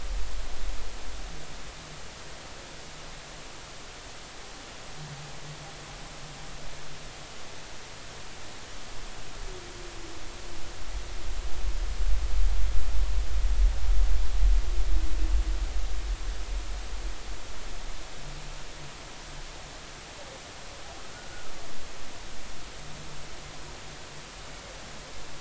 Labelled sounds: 21.1	21.5	humpback whale, 1.4 to 1.6 kHz

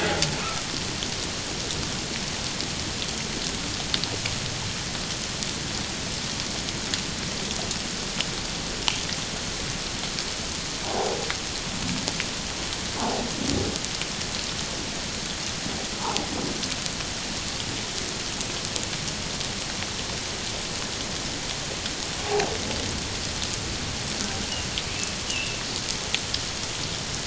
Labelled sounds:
10.8	11.2	humpback whale, 0.78 to 1.0 kHz
13.0	13.2	humpback whale, 0.78 to 0.97 kHz
16.0	16.3	humpback whale, 0.78 to 1.4 kHz
25.3	25.6	humpback whale, 2.6 to 3.0 kHz

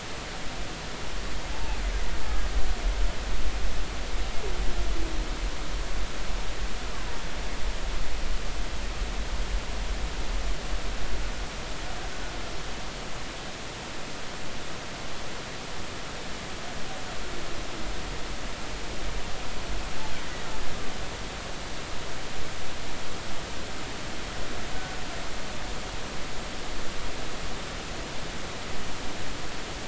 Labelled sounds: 1.5	1.8	killer whale, Bigg's (transient), 0.80 to 0.96 kHz
6.9	7.2	killer whale, Bigg's (transient), 0.93 to 1.2 kHz

